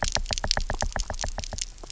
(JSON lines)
{"label": "biophony, knock", "recorder": "SoundTrap 300"}